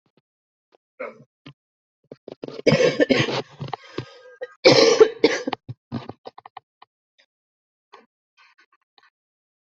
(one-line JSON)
{"expert_labels": [{"quality": "poor", "cough_type": "unknown", "dyspnea": false, "wheezing": false, "stridor": false, "choking": false, "congestion": false, "nothing": true, "diagnosis": "lower respiratory tract infection", "severity": "mild"}], "age": 30, "gender": "female", "respiratory_condition": false, "fever_muscle_pain": false, "status": "healthy"}